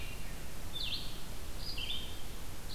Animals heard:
Red-eyed Vireo (Vireo olivaceus)

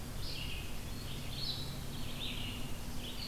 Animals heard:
Red-eyed Vireo (Vireo olivaceus)

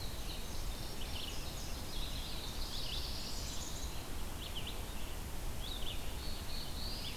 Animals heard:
Eastern Wood-Pewee (Contopus virens), Red-eyed Vireo (Vireo olivaceus), Indigo Bunting (Passerina cyanea), Black-throated Blue Warbler (Setophaga caerulescens)

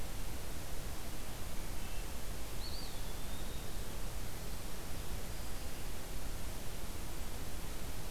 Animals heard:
Wood Thrush (Hylocichla mustelina), Eastern Wood-Pewee (Contopus virens)

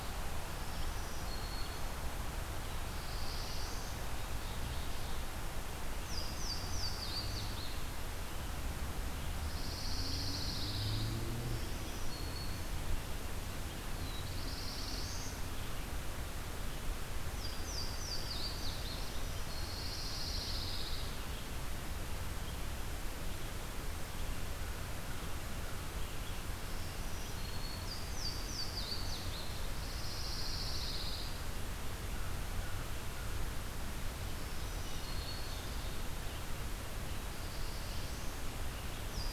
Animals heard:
Louisiana Waterthrush (Parkesia motacilla), Red-eyed Vireo (Vireo olivaceus), Ovenbird (Seiurus aurocapilla), Black-throated Green Warbler (Setophaga virens), Pine Warbler (Setophaga pinus), Black-throated Blue Warbler (Setophaga caerulescens), American Crow (Corvus brachyrhynchos)

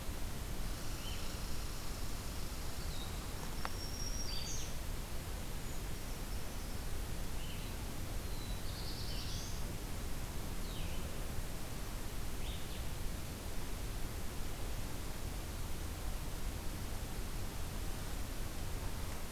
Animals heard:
Red Squirrel (Tamiasciurus hudsonicus), Black-throated Green Warbler (Setophaga virens), Black-throated Blue Warbler (Setophaga caerulescens), Blue-headed Vireo (Vireo solitarius)

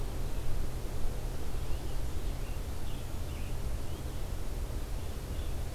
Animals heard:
Scarlet Tanager (Piranga olivacea)

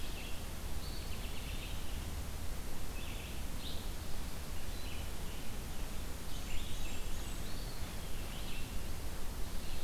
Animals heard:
Blackburnian Warbler (Setophaga fusca), American Robin (Turdus migratorius), Eastern Wood-Pewee (Contopus virens), Red-eyed Vireo (Vireo olivaceus)

